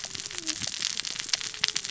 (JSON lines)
{"label": "biophony, cascading saw", "recorder": "SoundTrap 600 or HydroMoth"}